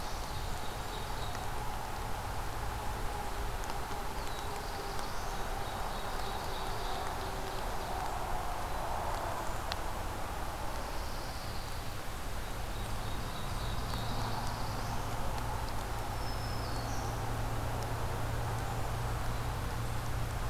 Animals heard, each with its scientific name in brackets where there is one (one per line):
Black-capped Chickadee (Poecile atricapillus)
Pine Warbler (Setophaga pinus)
Black-throated Blue Warbler (Setophaga caerulescens)
Black-throated Green Warbler (Setophaga virens)
Ovenbird (Seiurus aurocapilla)
Blackburnian Warbler (Setophaga fusca)